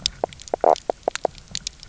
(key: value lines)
label: biophony, knock croak
recorder: SoundTrap 300